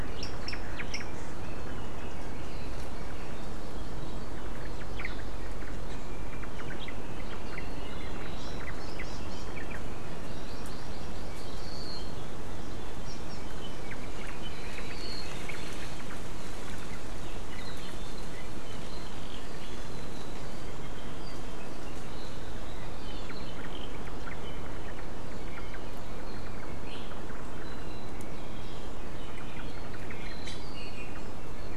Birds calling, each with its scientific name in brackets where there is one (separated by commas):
Omao (Myadestes obscurus), Iiwi (Drepanis coccinea), Hawaii Amakihi (Chlorodrepanis virens)